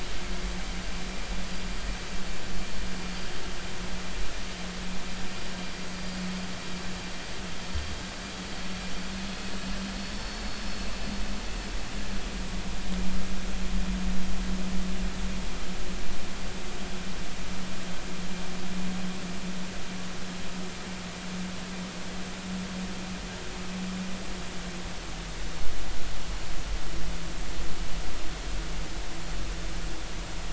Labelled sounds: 9.8	10.4	vessel noise, 4.2 to 5.4 kHz

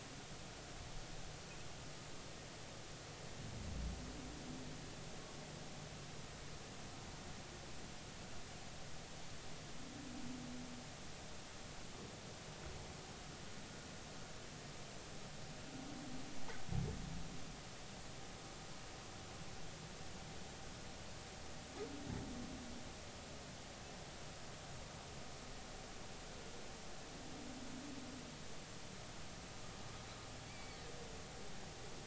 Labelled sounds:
30.5	30.8	humpback whale, 2.1 to 2.4 kHz

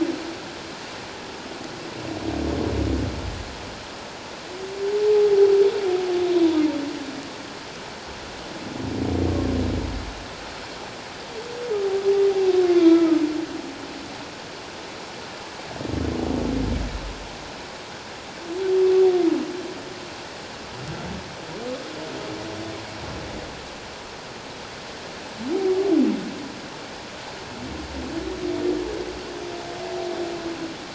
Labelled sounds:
12.6	13.2	humpback whale, 1.2 to 3.5 kHz

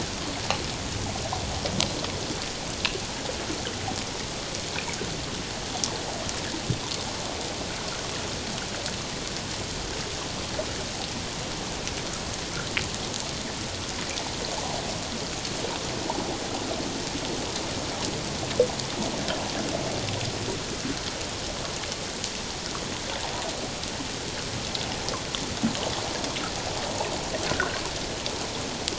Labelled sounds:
27.5	27.8	water noise, 1.3 to 1.6 kHz

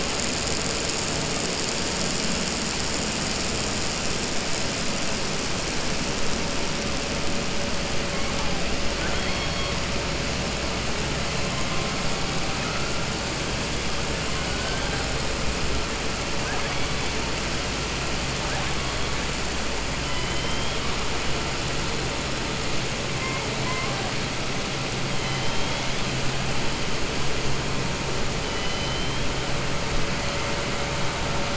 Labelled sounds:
8.9	9.7	killer whale, southern resident, 1.4 to 3.3 kHz
20.0	20.8	killer whale, southern resident, 2.0 to 4.0 kHz
25.1	26.1	killer whale, southern resident, 2.1 to 4.1 kHz

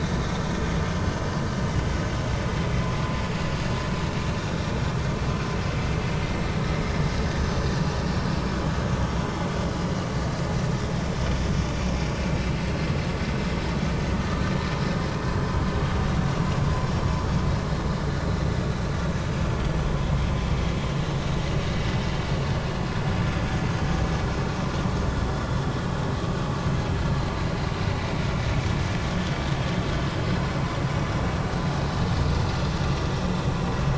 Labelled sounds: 9.0	9.3	vessel noise, 3.0 to 3.3 kHz
12.4	12.9	vessel noise, 4.0 to 4.3 kHz

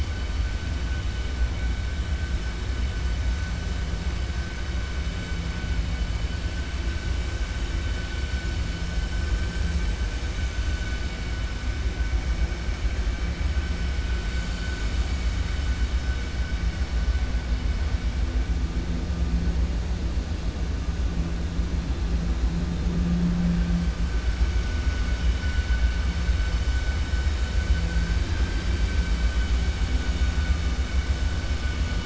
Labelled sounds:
28.2	28.9	vessel noise, 0.88 to 3.2 kHz

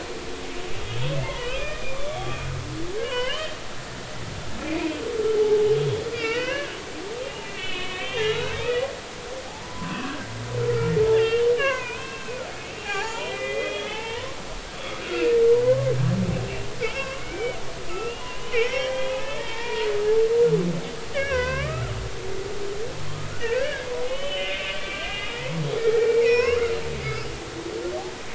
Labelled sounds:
1.2	2.4	humpback whale, 1.0 to 5.1 kHz
2.8	3.6	humpback whale, 0.93 to 3.2 kHz
4.7	5.7	humpback whale, 0.80 to 2.6 kHz
6.1	6.8	humpback whale, 0.96 to 3.1 kHz
7.2	8.9	humpback whale, 1.0 to 4.1 kHz
9.6	14.4	humpback whale, 0.80 to 7.3 kHz
14.8	15.9	humpback whale, 0.96 to 3.5 kHz
16.8	17.6	humpback whale, 0.99 to 3.0 kHz
17.9	19.9	humpback whale, 0.86 to 3.4 kHz
21.1	22.0	humpback whale, 0.96 to 4.8 kHz
23.4	26.6	humpback whale, 0.93 to 5.6 kHz

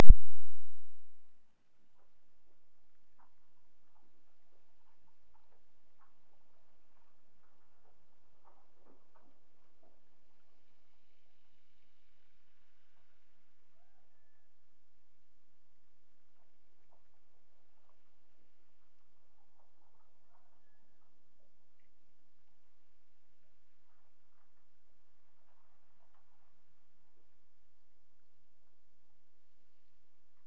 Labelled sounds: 13.7	14.9	killer whale, Bigg's (transient), Gulf of Alaska transient, 0.48 to 2.0 kHz
20.2	21.3	killer whale, Bigg's (transient), Gulf of Alaska transient, 0.51 to 1.8 kHz

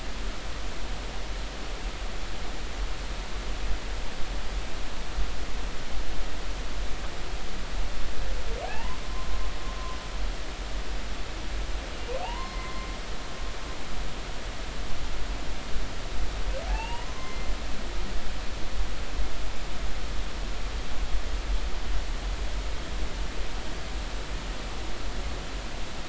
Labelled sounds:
8.6	9.3	humpback whale, 0.80 to 3.0 kHz
12.2	12.9	humpback whale, 0.80 to 2.1 kHz
16.7	17.5	humpback whale, 0.80 to 3.0 kHz

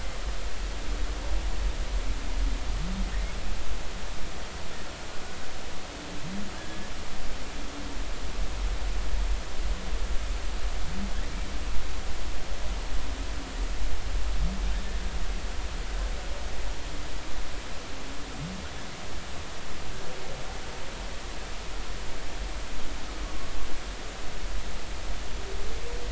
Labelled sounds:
6.5	6.9	humpback whale, 1.5 to 1.8 kHz

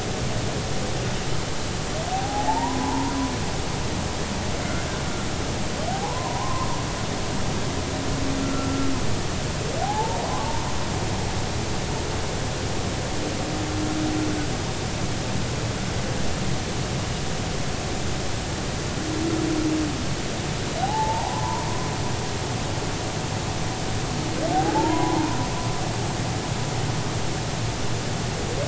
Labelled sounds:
2.1	3.1	humpback whale, 0.80 to 1.1 kHz
5.9	6.7	humpback whale, 0.80 to 1.1 kHz
8.4	8.9	humpback whale, 1.3 to 1.5 kHz
9.8	10.2	humpback whale, 0.80 to 0.99 kHz
20.8	21.6	humpback whale, 0.80 to 1.1 kHz
24.7	25.4	humpback whale, 0.80 to 1.1 kHz

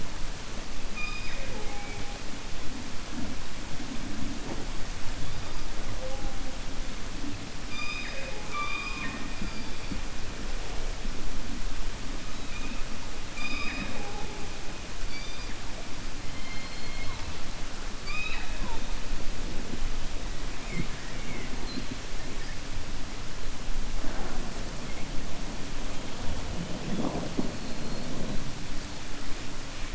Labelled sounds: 13.2	14.4	killer whale, 0.22 to 5.0 kHz
27.6	28.1	killer whale, 4.0 to 4.4 kHz

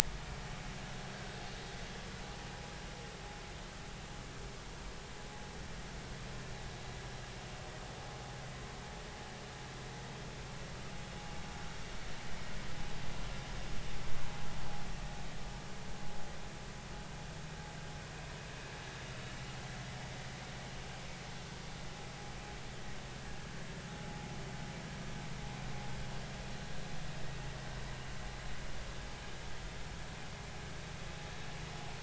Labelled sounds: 1.1	1.4	vessel noise, 1.5 to 1.7 kHz

